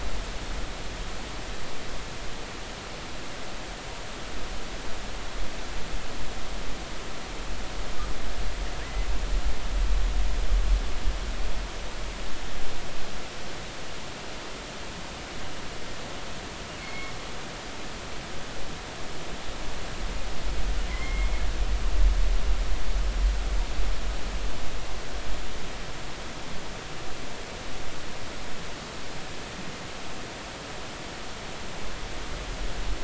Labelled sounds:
8.8	9.1	killer whale, northern resident, G clan, 1.8 to 2.1 kHz
16.8	17.1	killer whale, northern resident, G clan, 2.1 to 2.3 kHz
20.9	21.3	killer whale, northern resident, G clan, 2.0 to 2.2 kHz

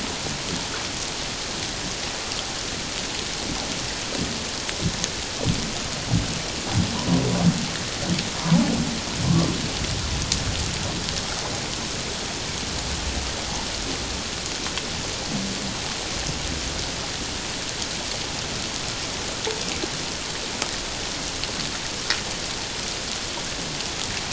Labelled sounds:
8.4	8.7	humpback whale, 0.78 to 1.1 kHz

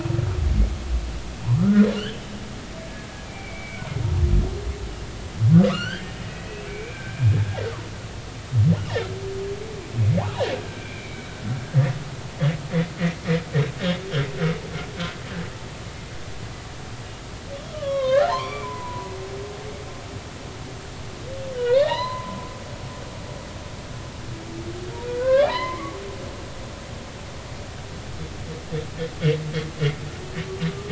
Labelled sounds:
1.4	2.3	humpback whale, 0.83 to 3.5 kHz
3.3	3.8	humpback whale, 2.1 to 2.4 kHz
5.7	7.3	humpback whale, 1.1 to 4.7 kHz
8.8	9.0	humpback whale, 2.7 to 3.1 kHz
10.8	11.3	humpback whale, 2.2 to 2.5 kHz
11.5	11.9	humpback whale, 1.5 to 1.7 kHz
17.7	19.1	humpback whale, 0.80 to 4.3 kHz
21.7	23.2	humpback whale, 0.80 to 4.2 kHz
25.2	26.0	humpback whale, 0.86 to 2.5 kHz

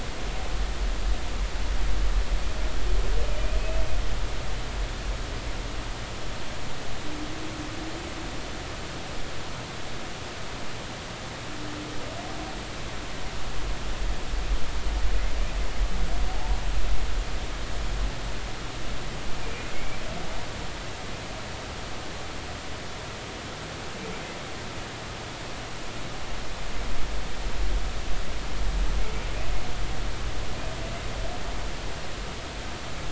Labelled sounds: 16.3	16.6	humpback whale, 0.80 to 0.99 kHz
19.5	20.0	humpback whale, 2.1 to 2.5 kHz

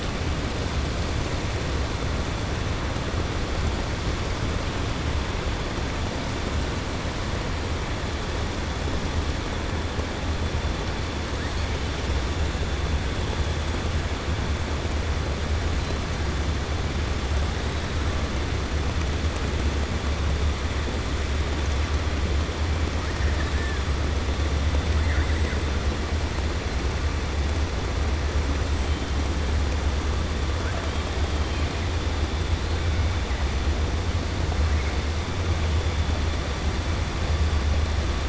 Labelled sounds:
23.2	23.8	killer whale, 1.3 to 1.9 kHz

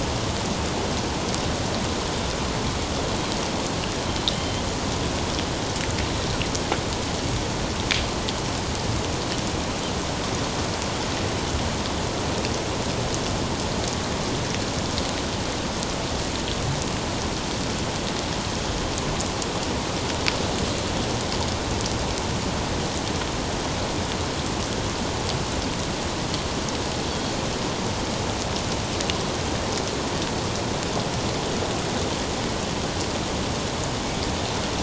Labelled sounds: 4.3	4.7	Pacific white-sided dolphin, 3.0 to 3.4 kHz

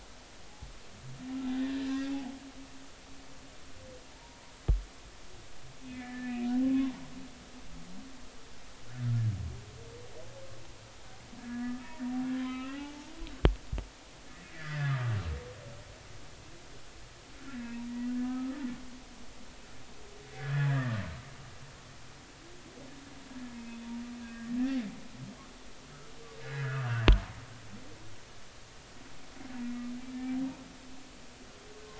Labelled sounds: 1.6	1.9	humpback whale, 1.6 to 1.9 kHz
4.2	4.4	humpback whale, 0.86 to 0.99 kHz
5.9	6.5	humpback whale, 1.6 to 2.8 kHz
11.4	12.9	humpback whale, 0.96 to 3.9 kHz
14.5	15.0	humpback whale, 1.1 to 2.1 kHz
17.5	18.6	humpback whale, 0.90 to 2.0 kHz
20.3	21.0	humpback whale, 1.1 to 2.0 kHz
23.5	24.5	humpback whale, 1.6 to 2.6 kHz
26.4	27.0	humpback whale, 1.2 to 1.8 kHz
30.0	30.4	humpback whale, 2.2 to 2.4 kHz

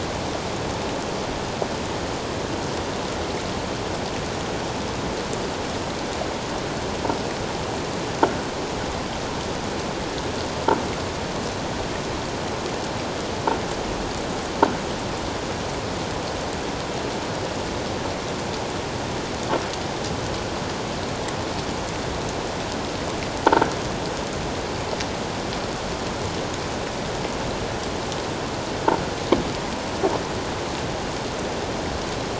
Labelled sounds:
23.5	23.7	croaking sound likely from a nearby submerged object, 1.3 to 1.7 kHz

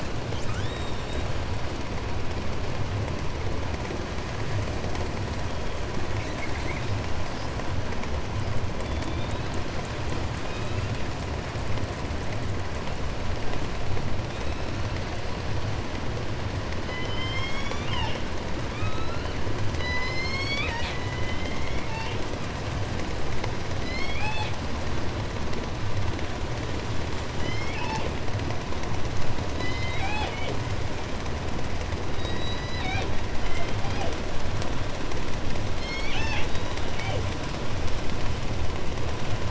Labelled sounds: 0.1	1.6	killer whale, 0.90 to 8.0 kHz
4.9	7.0	killer whale, southern resident, call S10, 1.3 to 8.0 kHz
8.6	10.0	killer whale, southern resident, 1.6 to 5.5 kHz
10.3	11.2	killer whale, southern resident, 1.1 to 4.5 kHz
14.2	15.3	killer whale, southern resident, 1.3 to 8.0 kHz
16.4	22.4	killer whale, southern resident, J pod, call S01, 0.73 to 8.0 kHz
23.6	24.7	killer whale, southern resident, J pod, call S01, 0.50 to 8.0 kHz
27.3	28.2	killer whale, southern resident, J pod, call S01, 0.73 to 7.7 kHz
29.5	31.1	killer whale, southern resident, J pod, call S01, 0.26 to 8.0 kHz
32.1	34.2	killer whale, southern resident, J pod, call S01, 0.32 to 8.0 kHz
35.8	37.3	killer whale, southern resident, J pod, call S01, 0.22 to 8.0 kHz

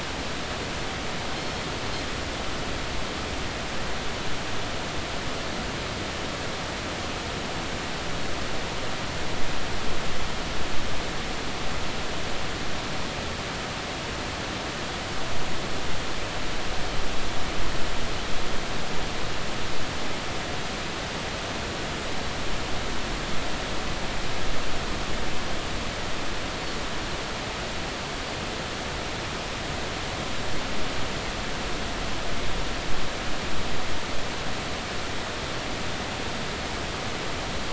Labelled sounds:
1.4	1.6	Pacific white-sided dolphin, 5.2 to 5.4 kHz

